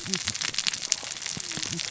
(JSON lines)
{"label": "biophony, cascading saw", "recorder": "SoundTrap 600 or HydroMoth"}